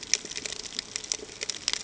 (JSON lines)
{"label": "ambient", "recorder": "HydroMoth"}